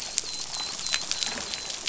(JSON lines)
{"label": "biophony, dolphin", "recorder": "SoundTrap 500"}